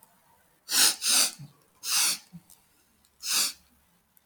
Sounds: Sniff